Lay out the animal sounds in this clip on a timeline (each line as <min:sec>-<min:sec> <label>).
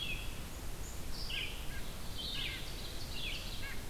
0:00.0-0:03.9 White-breasted Nuthatch (Sitta carolinensis)
0:01.0-0:03.9 Red-eyed Vireo (Vireo olivaceus)
0:01.7-0:03.7 Ovenbird (Seiurus aurocapilla)